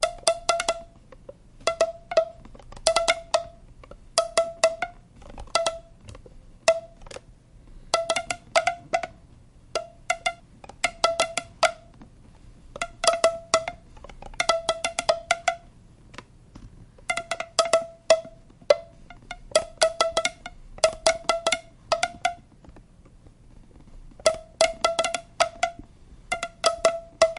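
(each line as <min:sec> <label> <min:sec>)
0:00.0 A loud, continuous, and disorganized sound of strings being plucked. 0:27.4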